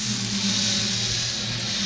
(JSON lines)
{"label": "anthrophony, boat engine", "recorder": "SoundTrap 500"}